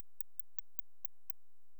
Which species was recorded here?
Canariola emarginata